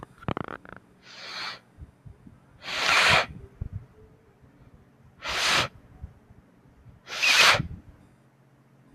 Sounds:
Sniff